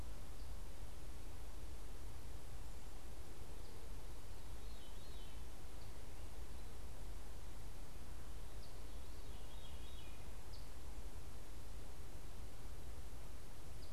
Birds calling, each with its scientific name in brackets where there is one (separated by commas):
Eastern Phoebe (Sayornis phoebe), Veery (Catharus fuscescens)